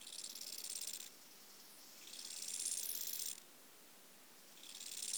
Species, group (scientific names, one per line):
Chorthippus eisentrauti
Orthoptera